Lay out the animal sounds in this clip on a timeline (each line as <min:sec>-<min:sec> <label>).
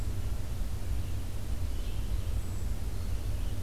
0:00.0-0:03.6 Red-eyed Vireo (Vireo olivaceus)
0:02.3-0:02.7 Hermit Thrush (Catharus guttatus)